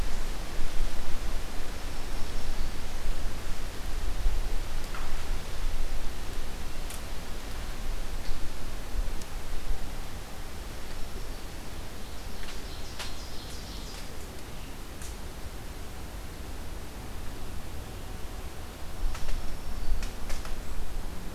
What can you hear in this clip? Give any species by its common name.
Black-capped Chickadee, Black-throated Green Warbler, Ovenbird